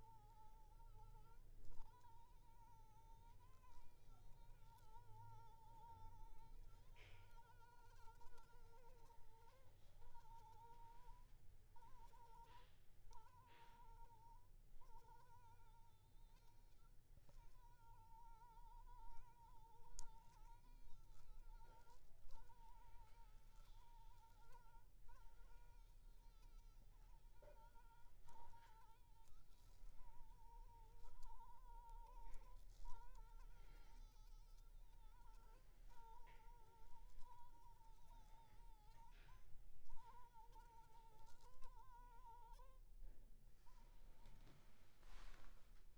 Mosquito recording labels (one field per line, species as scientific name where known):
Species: Anopheles funestus s.s.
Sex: female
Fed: blood-fed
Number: one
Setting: cup